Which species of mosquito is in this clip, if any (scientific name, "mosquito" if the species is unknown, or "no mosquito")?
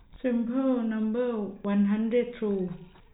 no mosquito